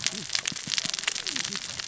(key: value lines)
label: biophony, cascading saw
recorder: SoundTrap 600 or HydroMoth